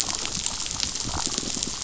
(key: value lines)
label: biophony
recorder: SoundTrap 500